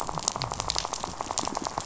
{"label": "biophony, rattle", "recorder": "SoundTrap 500"}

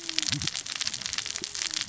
{"label": "biophony, cascading saw", "recorder": "SoundTrap 600 or HydroMoth"}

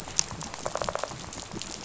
{"label": "biophony, rattle", "recorder": "SoundTrap 500"}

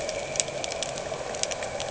{"label": "anthrophony, boat engine", "recorder": "HydroMoth"}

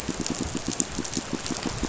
{"label": "biophony, pulse", "recorder": "SoundTrap 500"}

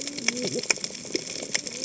{"label": "biophony, cascading saw", "recorder": "HydroMoth"}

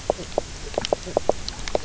{"label": "biophony, knock croak", "recorder": "SoundTrap 300"}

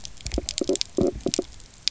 {"label": "biophony", "recorder": "SoundTrap 300"}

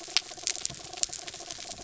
{"label": "anthrophony, mechanical", "recorder": "SoundTrap 300"}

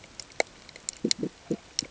{"label": "ambient", "recorder": "HydroMoth"}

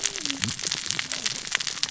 {"label": "biophony, cascading saw", "recorder": "SoundTrap 600 or HydroMoth"}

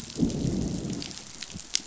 {"label": "biophony, growl", "recorder": "SoundTrap 500"}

